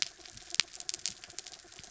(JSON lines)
{"label": "anthrophony, mechanical", "recorder": "SoundTrap 300"}